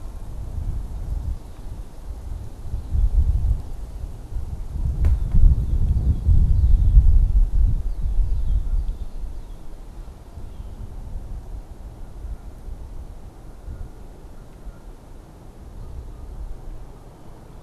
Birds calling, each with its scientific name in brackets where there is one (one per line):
Red-winged Blackbird (Agelaius phoeniceus)